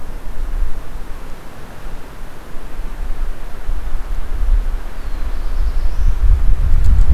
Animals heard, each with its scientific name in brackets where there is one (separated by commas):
Black-throated Blue Warbler (Setophaga caerulescens)